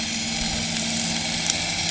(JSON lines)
{"label": "anthrophony, boat engine", "recorder": "HydroMoth"}